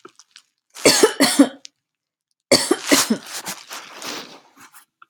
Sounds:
Cough